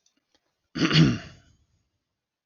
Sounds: Throat clearing